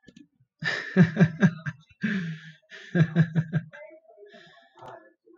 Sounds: Laughter